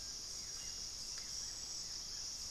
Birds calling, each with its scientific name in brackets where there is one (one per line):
Buff-throated Woodcreeper (Xiphorhynchus guttatus)